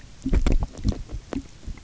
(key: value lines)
label: geophony, waves
recorder: SoundTrap 300